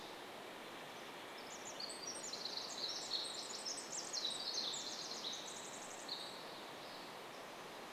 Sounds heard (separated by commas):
Pacific Wren song, Steller's Jay call